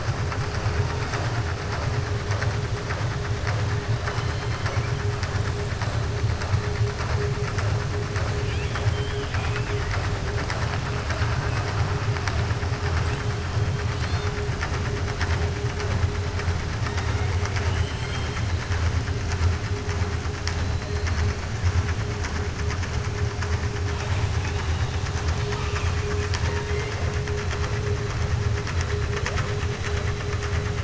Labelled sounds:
8.4	10.0	killer whale, 0.82 to 3.5 kHz
24.3	25.1	killer whale, 2.0 to 4.8 kHz

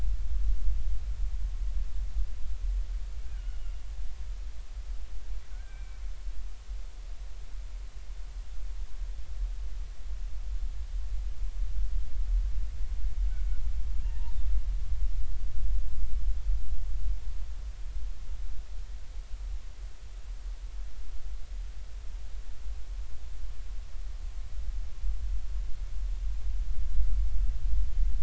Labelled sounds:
3.3	3.8	killer whale, Bigg's (transient), 1.4 to 3.0 kHz
5.5	6.0	killer whale, Bigg's (transient), 1.4 to 2.4 kHz
14.0	14.3	killer whale, Bigg's (transient), 0.86 to 0.99 kHz

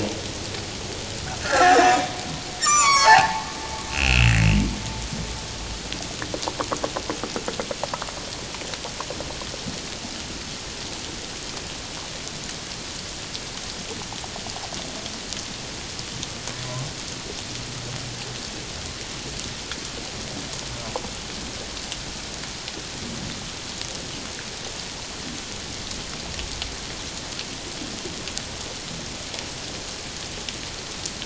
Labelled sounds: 1.4	1.8	humpback whale, 0.78 to 2.0 kHz
2.6	3.5	humpback whale, 0.78 to 7.4 kHz
3.9	4.3	humpback whale, 2.4 to 2.9 kHz

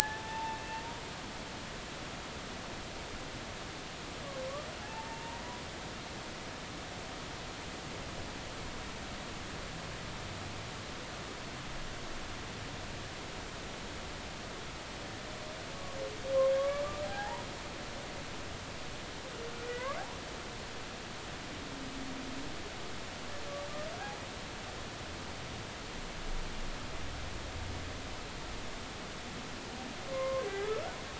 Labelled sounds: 1.0	1.6	humpback whale, 0.80 to 0.96 kHz
4.8	5.4	humpback whale, 0.80 to 0.99 kHz
16.6	17.5	humpback whale, 0.80 to 2.0 kHz
19.7	20.0	humpback whale, 1.4 to 2.3 kHz
30.1	30.5	humpback whale, 0.99 to 1.1 kHz

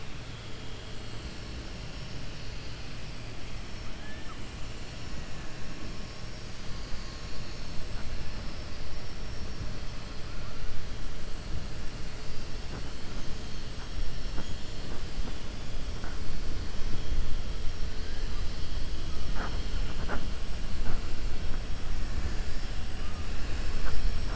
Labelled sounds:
3.9	4.4	killer whale, 0.82 to 1.8 kHz
14.3	14.8	killer whale, 6.4 to 7.5 kHz

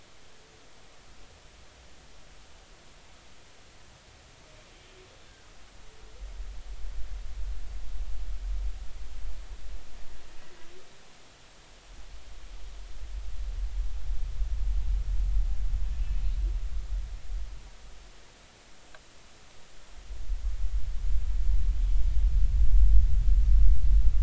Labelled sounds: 5.2	5.5	humpback whale, 1.4 to 1.7 kHz

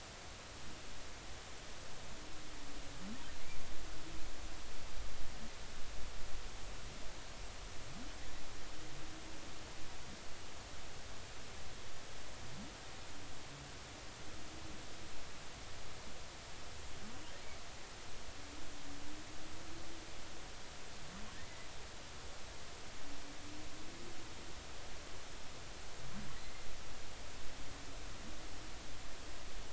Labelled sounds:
26.4	26.7	humpback whale, 2.0 to 2.1 kHz

